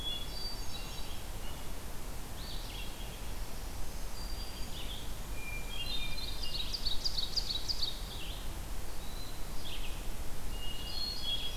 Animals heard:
Red-eyed Vireo (Vireo olivaceus), Black-throated Green Warbler (Setophaga virens), Ovenbird (Seiurus aurocapilla), Hermit Thrush (Catharus guttatus), Blue Jay (Cyanocitta cristata)

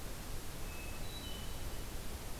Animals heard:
Hermit Thrush (Catharus guttatus)

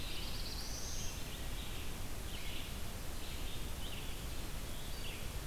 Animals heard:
Red-eyed Vireo (Vireo olivaceus), Black-throated Blue Warbler (Setophaga caerulescens)

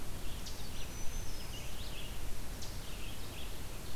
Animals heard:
Black-throated Green Warbler (Setophaga virens), Eastern Chipmunk (Tamias striatus), Red-eyed Vireo (Vireo olivaceus)

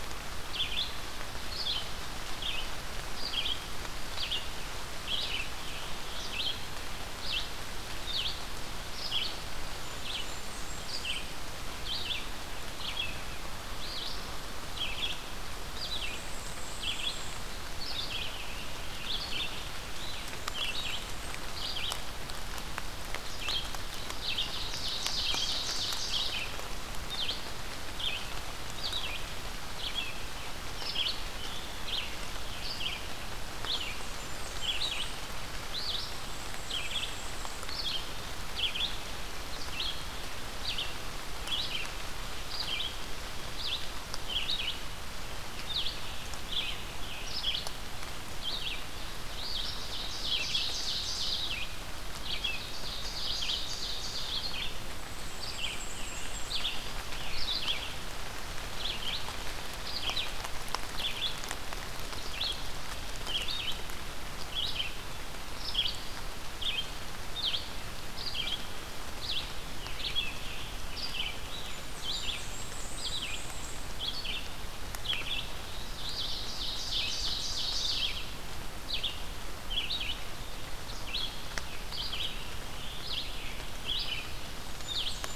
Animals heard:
Red-eyed Vireo (Vireo olivaceus), Scarlet Tanager (Piranga olivacea), Blackburnian Warbler (Setophaga fusca), Ovenbird (Seiurus aurocapilla), Black-and-white Warbler (Mniotilta varia)

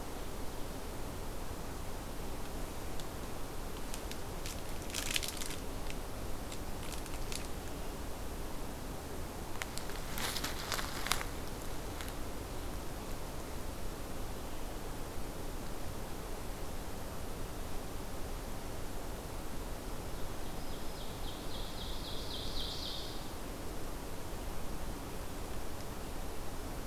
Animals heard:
Ovenbird (Seiurus aurocapilla), Black-throated Green Warbler (Setophaga virens)

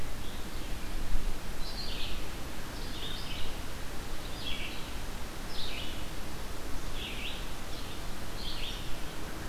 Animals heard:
American Robin (Turdus migratorius), Red-eyed Vireo (Vireo olivaceus)

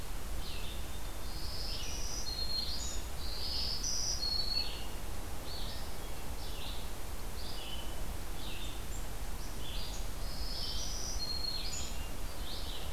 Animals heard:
Black-throated Green Warbler (Setophaga virens), Red-eyed Vireo (Vireo olivaceus), Blue Jay (Cyanocitta cristata), Hermit Thrush (Catharus guttatus)

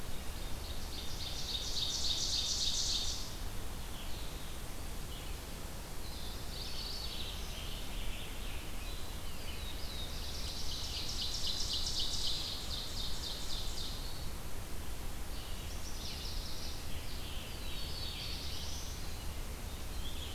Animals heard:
Mourning Warbler (Geothlypis philadelphia), Ovenbird (Seiurus aurocapilla), Black-throated Blue Warbler (Setophaga caerulescens), Scarlet Tanager (Piranga olivacea), Red-eyed Vireo (Vireo olivaceus), Chestnut-sided Warbler (Setophaga pensylvanica)

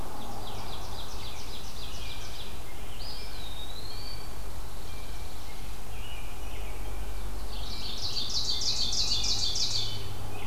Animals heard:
Ovenbird (Seiurus aurocapilla), American Robin (Turdus migratorius), Eastern Wood-Pewee (Contopus virens), Blue Jay (Cyanocitta cristata), Dark-eyed Junco (Junco hyemalis)

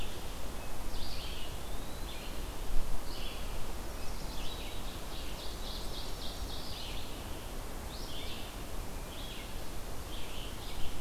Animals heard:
Chestnut-sided Warbler (Setophaga pensylvanica), Eastern Wood-Pewee (Contopus virens), Ovenbird (Seiurus aurocapilla), Red-eyed Vireo (Vireo olivaceus)

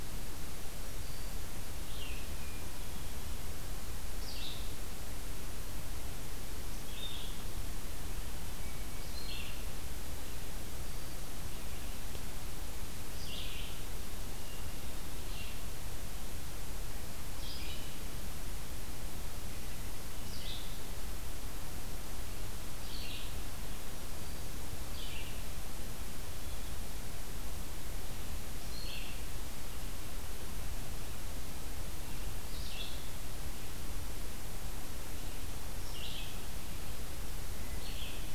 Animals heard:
Red-eyed Vireo (Vireo olivaceus), Hermit Thrush (Catharus guttatus)

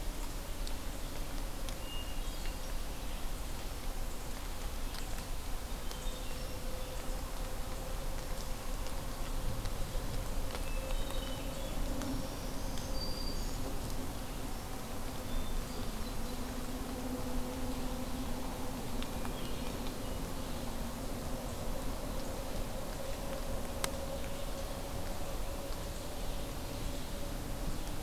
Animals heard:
Black-throated Green Warbler (Setophaga virens), Hermit Thrush (Catharus guttatus)

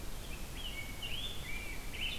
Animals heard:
Rose-breasted Grosbeak (Pheucticus ludovicianus)

